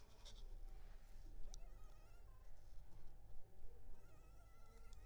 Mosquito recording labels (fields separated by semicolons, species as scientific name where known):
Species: Anopheles arabiensis; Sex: male; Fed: unfed; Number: one; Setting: cup